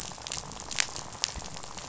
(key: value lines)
label: biophony, rattle
recorder: SoundTrap 500